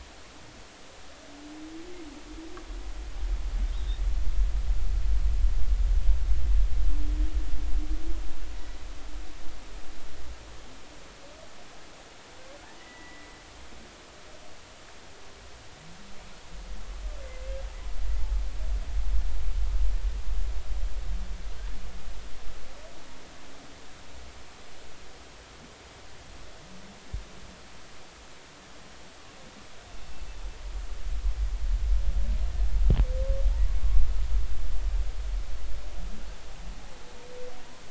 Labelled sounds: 3.7	4.0	humpback whale, 3.5 to 3.9 kHz
8.5	8.9	humpback whale, 1.9 to 2.0 kHz
12.8	13.3	humpback whale, 1.9 to 2.1 kHz
17.2	17.5	humpback whale, 2.0 to 2.2 kHz

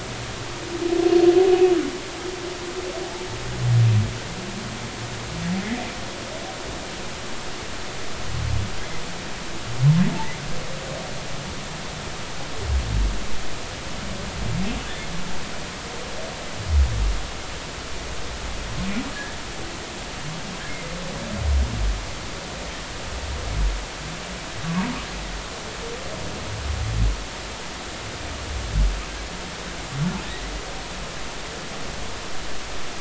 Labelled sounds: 19.1	19.4	humpback whale, 1.6 to 1.9 kHz
20.7	21.0	humpback whale, 2.0 to 2.2 kHz
24.7	24.9	humpback whale, 0.86 to 1.2 kHz

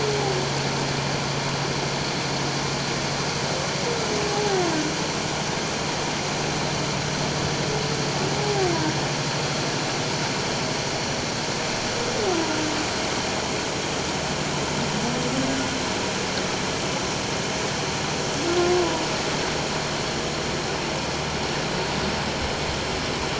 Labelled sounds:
4.3	4.6	humpback whale, 0.78 to 0.88 kHz
8.4	8.7	humpback whale, 0.78 to 0.88 kHz

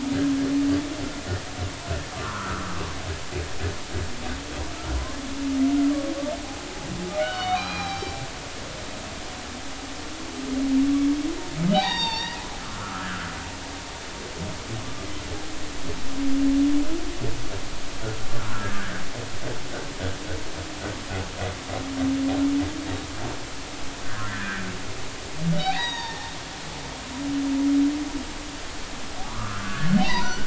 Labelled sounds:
2.2	2.6	humpback whale, 0.93 to 1.6 kHz
7.2	8.2	humpback whale, 1.4 to 5.7 kHz
11.7	12.4	humpback whale, 0.80 to 5.7 kHz
12.8	13.3	humpback whale, 1.1 to 1.8 kHz
18.4	18.7	humpback whale, 1.3 to 1.5 kHz
24.0	24.6	humpback whale, 1.0 to 2.0 kHz
25.6	26.3	humpback whale, 0.83 to 5.8 kHz
29.2	30.4	humpback whale, 0.80 to 6.1 kHz

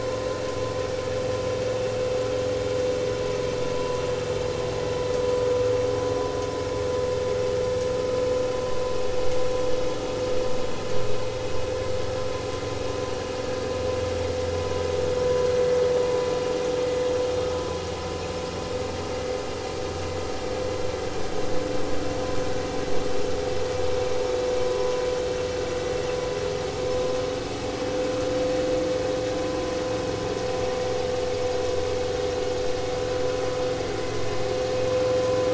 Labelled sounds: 3.8	4.0	vessel noise, 0.90 to 1.1 kHz

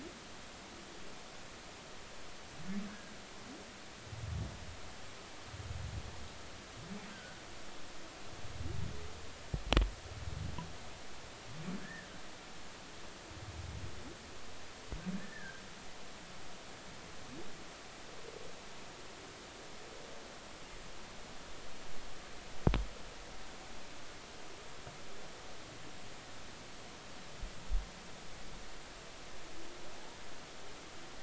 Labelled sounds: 2.9	3.2	humpback whale, 1.4 to 1.7 kHz
7.1	7.4	humpback whale, 1.4 to 1.6 kHz
11.8	12.1	humpback whale, 1.6 to 1.9 kHz
15.2	15.6	humpback whale, 1.5 to 1.9 kHz

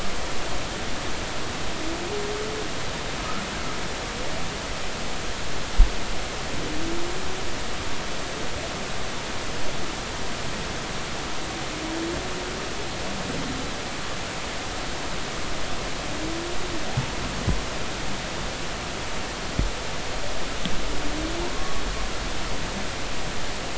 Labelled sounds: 22.5	22.8	humpback whale, 1.0 to 1.2 kHz

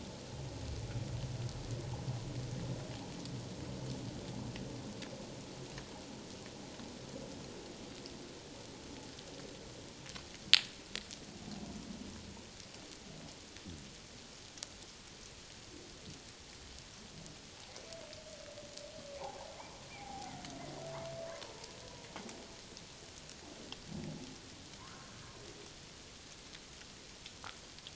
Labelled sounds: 19.9	20.3	humpback whale, 0.78 to 2.4 kHz
24.8	25.1	humpback whale, 0.91 to 1.6 kHz

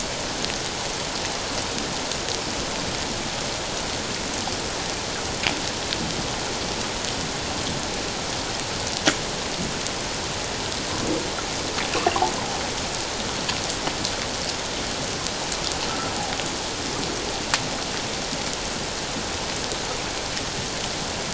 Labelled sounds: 15.9	16.2	humpback whale, 1.2 to 1.4 kHz

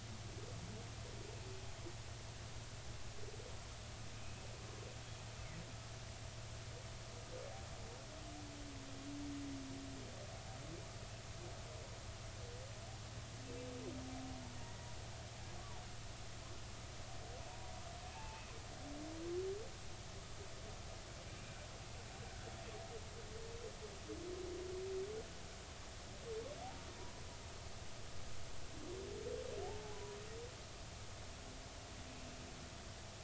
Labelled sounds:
14.5	14.9	humpback whale, 1.8 to 2.0 kHz
15.6	15.8	humpback whale, 0.83 to 1.2 kHz
17.5	17.7	humpback whale, 0.86 to 0.99 kHz
18.1	18.5	humpback whale, 0.80 to 2.8 kHz
27.0	27.2	humpback whale, 0.93 to 1.0 kHz
29.6	30.2	humpback whale, 0.80 to 1.0 kHz

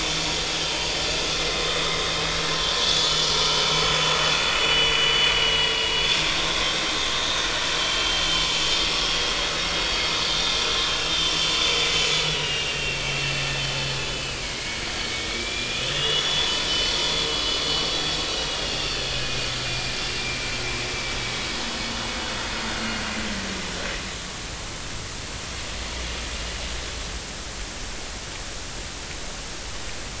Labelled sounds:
2.9	3.7	vessel noise, 2.8 to 3.6 kHz
4.5	8.5	vessel noise, 2.8 to 6.3 kHz
8.9	10.6	vessel noise, 3.2 to 5.5 kHz
11.1	11.5	vessel noise, 3.0 to 3.2 kHz
12.1	13.6	vessel noise, 1.6 to 4.1 kHz
14.1	14.8	vessel noise, 2.0 to 3.0 kHz
15.3	16.5	vessel noise, 2.1 to 3.6 kHz
18.3	19.0	vessel noise, 2.6 to 2.9 kHz
19.7	20.6	vessel noise, 2.3 to 2.8 kHz
21.2	21.5	vessel noise, 2.2 to 2.3 kHz

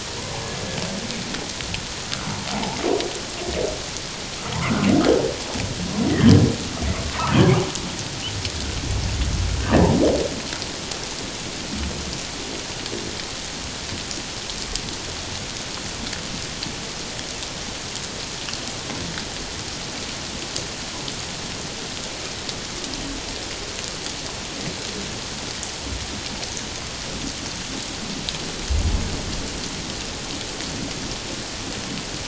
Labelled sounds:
2.2	2.8	humpback whale, 0.78 to 1.1 kHz
6.1	6.3	humpback whale, 1.6 to 2.0 kHz

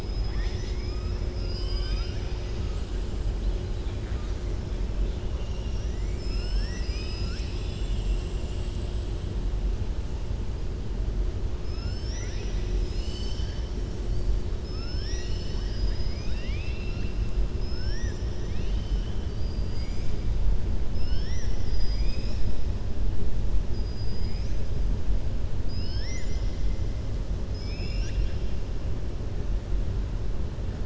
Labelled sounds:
11.6	12.7	killer whale, southern resident, 1.4 to 6.3 kHz
17.7	18.2	killer whale, southern resident, 1.4 to 3.6 kHz
27.4	28.4	killer whale, southern resident, 1.6 to 7.0 kHz

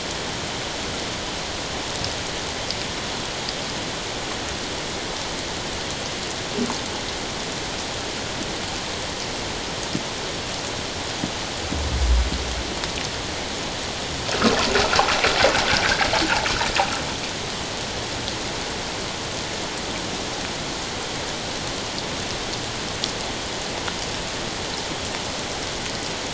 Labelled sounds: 14.3	14.6	water noise, 1.2 to 1.5 kHz

